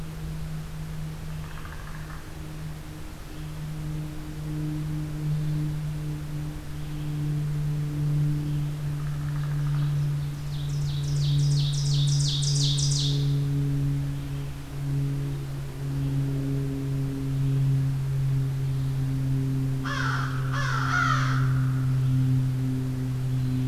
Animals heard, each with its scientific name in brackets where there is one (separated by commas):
Ovenbird (Seiurus aurocapilla), American Crow (Corvus brachyrhynchos), Red-eyed Vireo (Vireo olivaceus), Common Raven (Corvus corax)